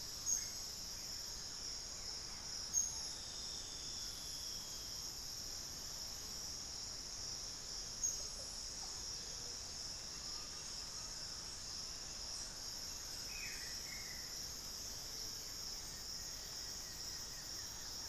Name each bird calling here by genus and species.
unidentified bird, Dendroma erythroptera, Psarocolius angustifrons, Saltator coerulescens, Crypturellus undulatus, Xiphorhynchus guttatus